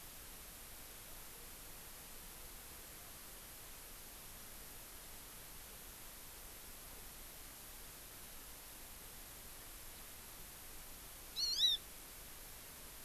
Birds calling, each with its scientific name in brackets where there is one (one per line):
Hawaii Amakihi (Chlorodrepanis virens)